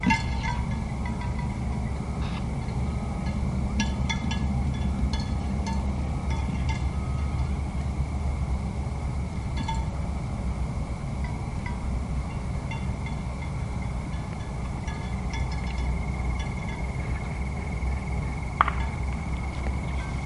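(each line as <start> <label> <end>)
0.0 Distant cowbells ringing faintly. 8.4
2.1 Radio static noise. 2.4
9.2 A cowbell sounds in the distance. 9.9
11.1 A cowbell sounds in the distance. 11.8
12.8 Distant, faint cowbell sounds. 20.3
18.5 A distant loud thump is heard. 18.9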